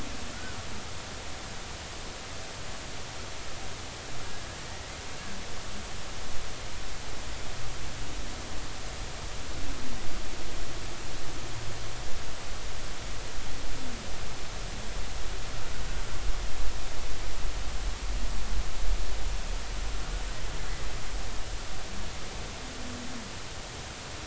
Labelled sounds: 0.3	0.6	humpback whale, 1.3 to 1.6 kHz

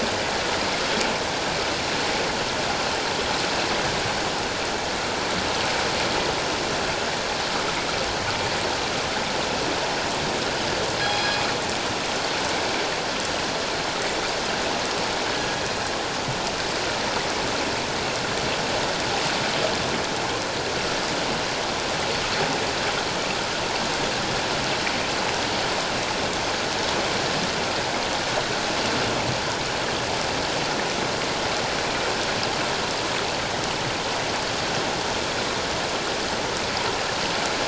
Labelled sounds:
11.0	11.3	killer whale, northern resident, G clan, call N24ii, 3.2 to 3.4 kHz
15.3	15.6	killer whale, northern resident, G clan, 1.6 to 1.7 kHz

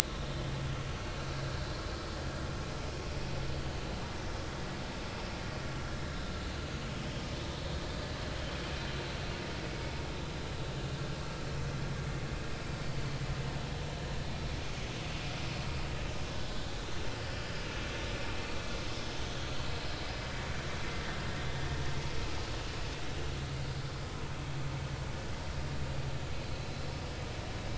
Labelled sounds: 17.4	17.7	vessel noise, 4.8 to 5.0 kHz

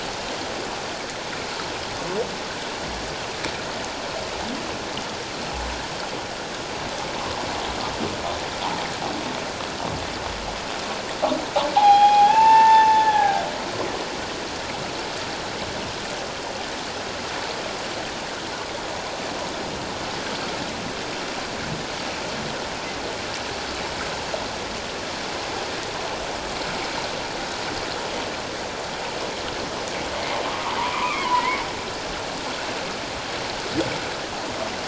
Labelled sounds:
11.8	13.5	humpback whale, 0.78 to 3.4 kHz
30.8	31.6	humpback whale, 0.88 to 2.6 kHz

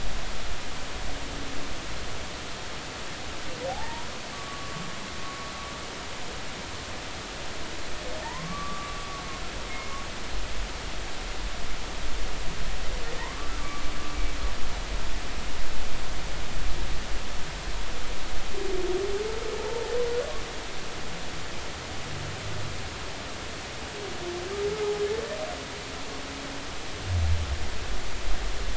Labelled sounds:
3.7	4.8	humpback whale, 0.80 to 1.2 kHz
8.2	9.0	humpback whale, 0.83 to 1.2 kHz
9.7	9.9	humpback whale, 2.1 to 2.2 kHz
13.2	13.8	humpback whale, 0.86 to 1.2 kHz

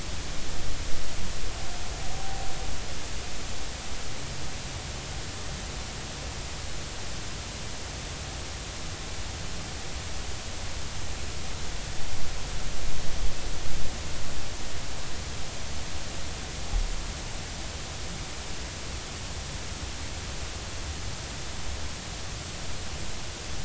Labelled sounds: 2.1	2.5	humpback whale, 0.80 to 0.83 kHz

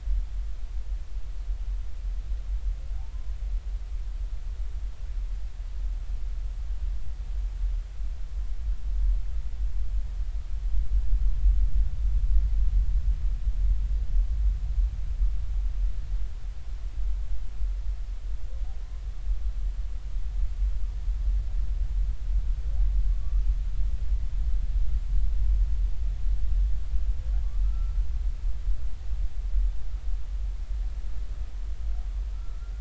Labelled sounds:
23.2	23.5	humpback whale, 1.1 to 1.3 kHz
27.6	28.0	humpback whale, 1.2 to 1.4 kHz
32.3	32.7	humpback whale, 1.3 to 1.4 kHz

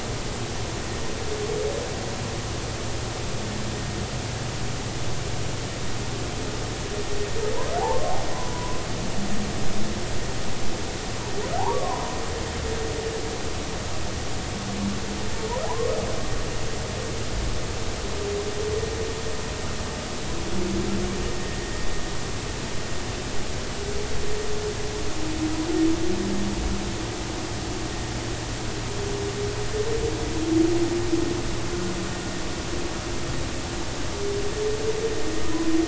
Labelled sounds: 7.8	8.8	humpback whale, 0.80 to 1.1 kHz
11.6	12.1	humpback whale, 0.80 to 1.2 kHz
15.6	15.9	humpback whale, 0.80 to 1.2 kHz
21.5	21.7	humpback whale, 1.8 to 2.0 kHz

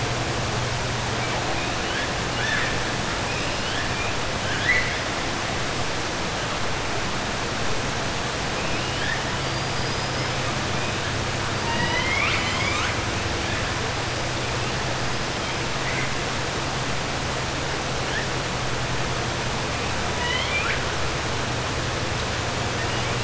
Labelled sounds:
2.3	2.8	killer whale, 1.3 to 4.5 kHz
3.2	4.1	killer whale, 1.7 to 5.1 kHz
4.4	5.0	killer whale, 1.5 to 4.3 kHz
9.4	10.0	killer whale, 4.6 to 5.1 kHz
11.6	13.0	killer whale, 0.89 to 7.3 kHz
20.1	20.8	killer whale, 0.98 to 4.1 kHz

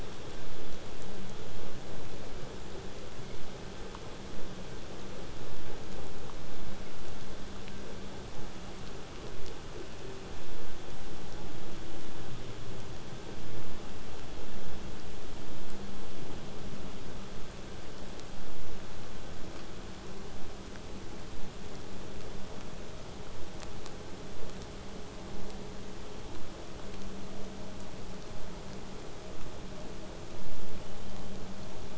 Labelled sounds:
30.8	31.4	killer whale, southern resident, whistle, 2.7 to 3.5 kHz

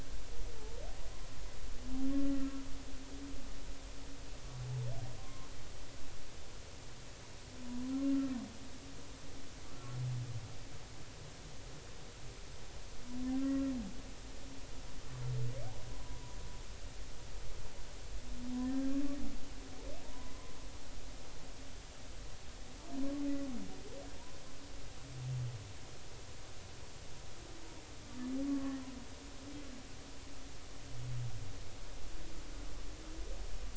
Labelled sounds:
0.6	0.8	humpback whale, 0.83 to 0.93 kHz
5.2	5.5	humpback whale, 0.99 to 1.1 kHz
9.7	10.0	humpback whale, 1.3 to 1.4 kHz
20.0	20.3	humpback whale, 0.90 to 1.1 kHz
28.4	28.8	humpback whale, 1.0 to 1.2 kHz

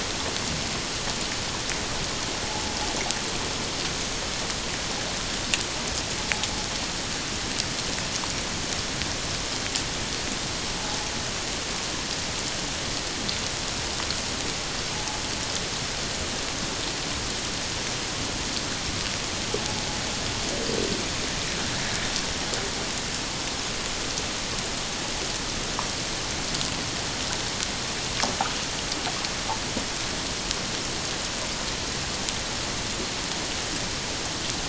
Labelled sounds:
10.8	11.1	invertebrate grinding on or near the hydrophone, 0.78 to 0.94 kHz
14.9	15.2	invertebrate grinding on or near the hydrophone, 0.78 to 0.91 kHz

